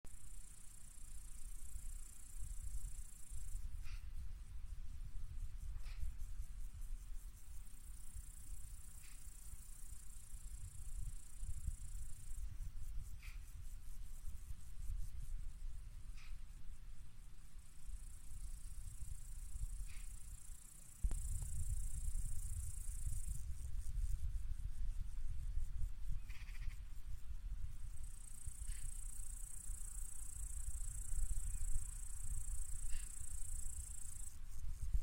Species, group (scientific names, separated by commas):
Tettigonia cantans, Orthoptera